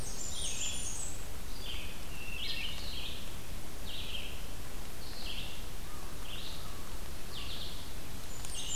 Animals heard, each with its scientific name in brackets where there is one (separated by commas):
Red-eyed Vireo (Vireo olivaceus), American Crow (Corvus brachyrhynchos), Wood Thrush (Hylocichla mustelina), Blackburnian Warbler (Setophaga fusca)